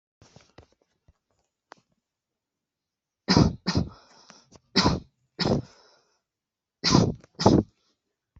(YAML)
expert_labels:
- quality: good
  cough_type: dry
  dyspnea: false
  wheezing: false
  stridor: false
  choking: false
  congestion: false
  nothing: true
  diagnosis: obstructive lung disease
  severity: mild
age: 22
gender: male
respiratory_condition: true
fever_muscle_pain: true
status: healthy